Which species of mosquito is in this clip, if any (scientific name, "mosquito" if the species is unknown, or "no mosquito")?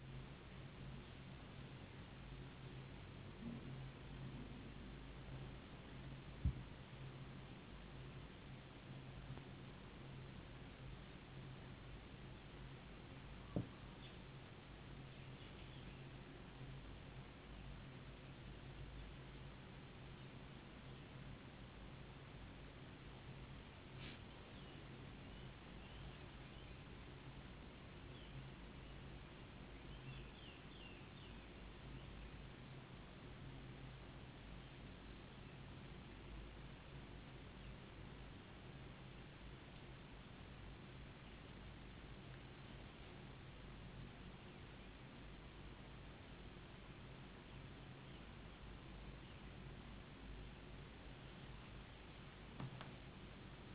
no mosquito